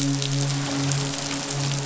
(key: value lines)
label: biophony, midshipman
recorder: SoundTrap 500